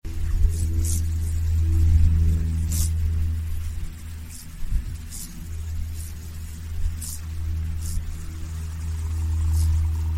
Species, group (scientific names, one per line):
Chorthippus brunneus
Orthoptera